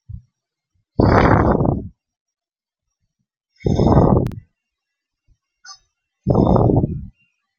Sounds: Sigh